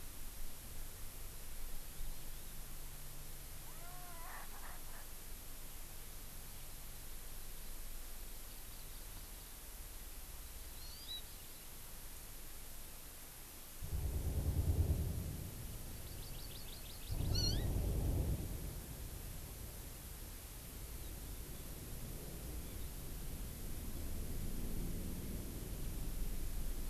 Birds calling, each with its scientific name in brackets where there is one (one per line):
Hawaii Amakihi (Chlorodrepanis virens)
Erckel's Francolin (Pternistis erckelii)